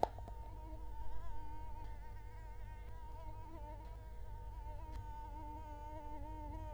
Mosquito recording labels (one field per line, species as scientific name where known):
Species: Culex quinquefasciatus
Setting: cup